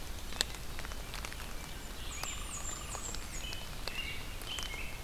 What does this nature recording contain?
Blackburnian Warbler, Hairy Woodpecker, Red-eyed Vireo, American Robin